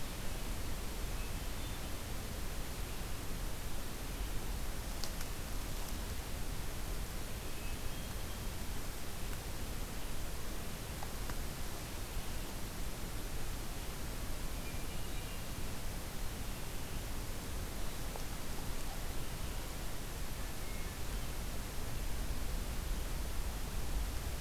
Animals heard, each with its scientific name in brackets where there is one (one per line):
Hermit Thrush (Catharus guttatus)